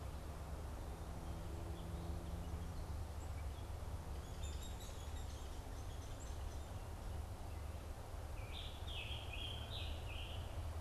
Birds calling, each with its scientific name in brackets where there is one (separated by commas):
Hairy Woodpecker (Dryobates villosus), Scarlet Tanager (Piranga olivacea)